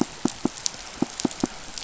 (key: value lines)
label: biophony, pulse
recorder: SoundTrap 500